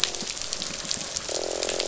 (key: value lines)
label: biophony, croak
recorder: SoundTrap 500